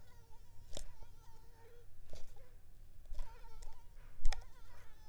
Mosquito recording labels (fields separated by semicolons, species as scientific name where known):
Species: mosquito; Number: one; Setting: cup